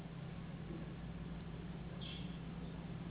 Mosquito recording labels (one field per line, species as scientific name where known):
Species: Anopheles gambiae s.s.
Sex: female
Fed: unfed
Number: one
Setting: insect culture